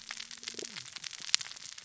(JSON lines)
{"label": "biophony, cascading saw", "recorder": "SoundTrap 600 or HydroMoth"}